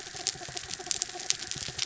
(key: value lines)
label: anthrophony, mechanical
recorder: SoundTrap 300